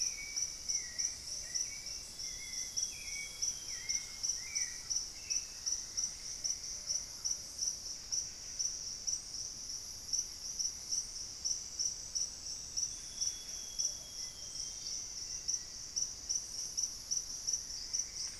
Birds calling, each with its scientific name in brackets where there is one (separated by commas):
Plumbeous Antbird (Myrmelastes hyperythrus), Solitary Black Cacique (Cacicus solitarius), Amazonian Grosbeak (Cyanoloxia rothschildii), Plumbeous Pigeon (Patagioenas plumbea), Hauxwell's Thrush (Turdus hauxwelli), Black-faced Antthrush (Formicarius analis)